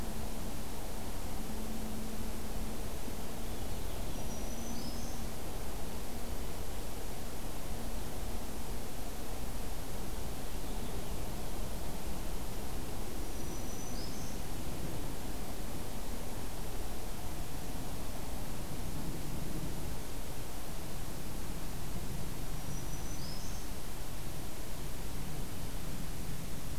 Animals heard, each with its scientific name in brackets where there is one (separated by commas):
Purple Finch (Haemorhous purpureus), Black-throated Green Warbler (Setophaga virens)